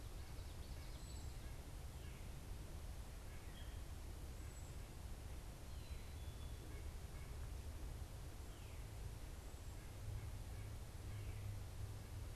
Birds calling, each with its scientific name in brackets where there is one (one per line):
White-breasted Nuthatch (Sitta carolinensis)
Black-capped Chickadee (Poecile atricapillus)
Common Yellowthroat (Geothlypis trichas)